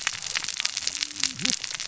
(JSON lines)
{"label": "biophony, cascading saw", "recorder": "SoundTrap 600 or HydroMoth"}